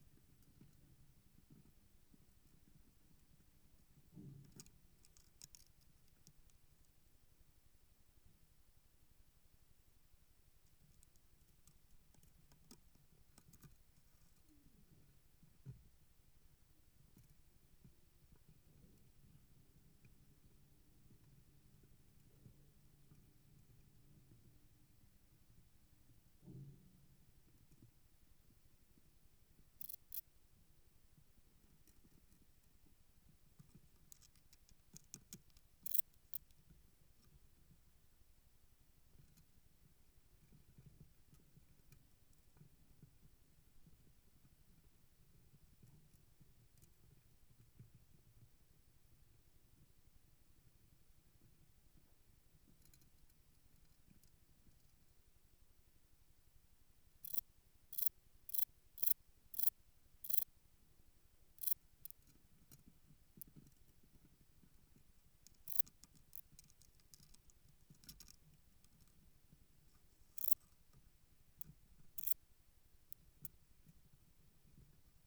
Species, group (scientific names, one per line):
Metrioptera brachyptera
Orthoptera